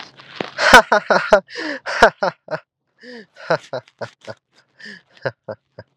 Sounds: Laughter